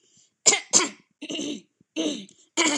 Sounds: Throat clearing